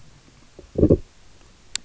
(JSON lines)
{"label": "biophony, low growl", "recorder": "SoundTrap 300"}